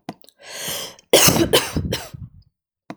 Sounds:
Cough